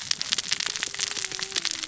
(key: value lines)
label: biophony, cascading saw
recorder: SoundTrap 600 or HydroMoth